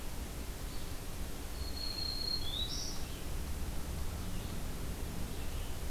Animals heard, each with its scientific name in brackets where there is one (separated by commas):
Red-eyed Vireo (Vireo olivaceus), Black-throated Green Warbler (Setophaga virens)